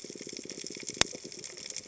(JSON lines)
{"label": "biophony", "recorder": "HydroMoth"}